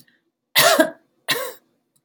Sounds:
Cough